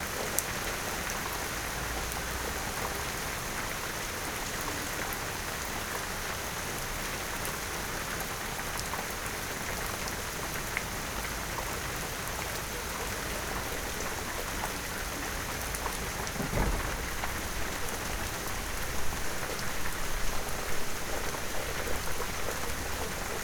what is falling from the sky?
rain